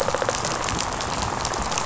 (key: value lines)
label: biophony, rattle response
recorder: SoundTrap 500